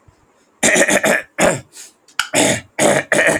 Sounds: Throat clearing